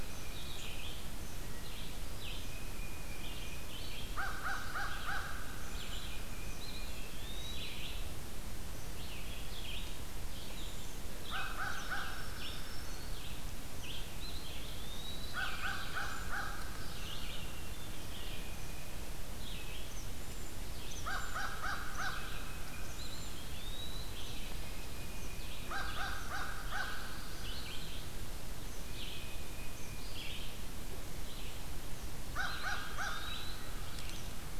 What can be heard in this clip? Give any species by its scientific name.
Baeolophus bicolor, Vireo olivaceus, Corvus brachyrhynchos, Bombycilla cedrorum, Contopus virens, Setophaga virens